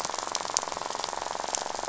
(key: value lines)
label: biophony, rattle
recorder: SoundTrap 500